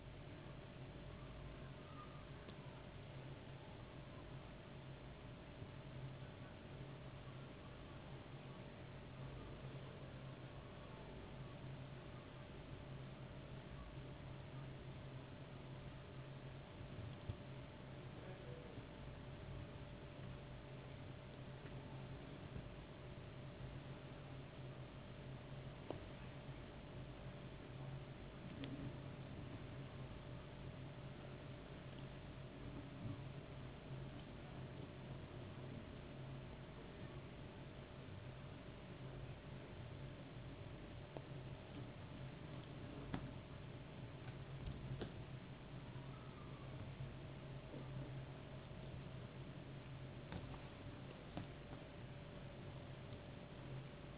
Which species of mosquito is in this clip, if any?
no mosquito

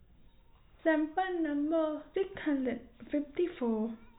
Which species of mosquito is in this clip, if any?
no mosquito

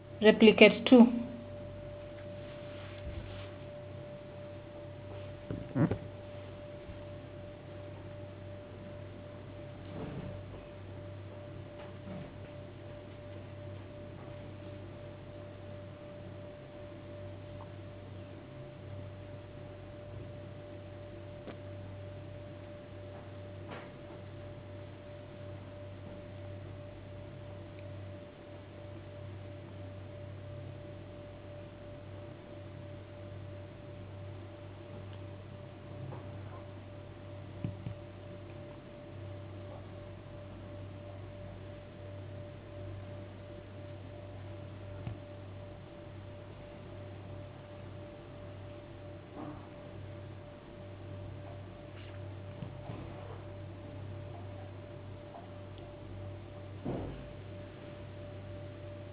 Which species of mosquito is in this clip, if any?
no mosquito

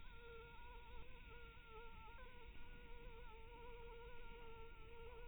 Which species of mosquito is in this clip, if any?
Anopheles minimus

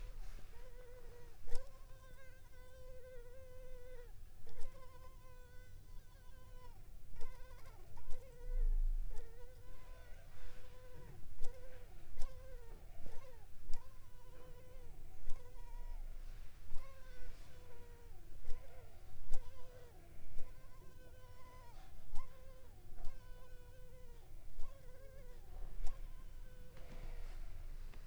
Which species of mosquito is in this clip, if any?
Culex pipiens complex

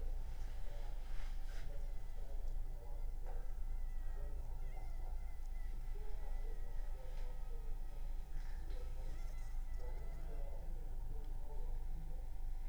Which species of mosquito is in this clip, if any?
Anopheles funestus s.s.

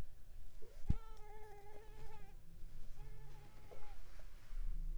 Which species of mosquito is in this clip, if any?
Mansonia africanus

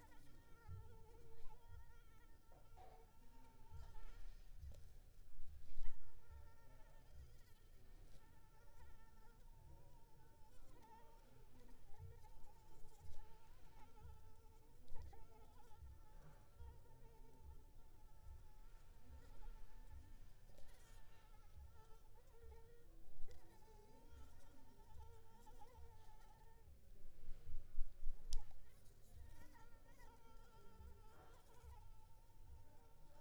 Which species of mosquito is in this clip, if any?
Anopheles arabiensis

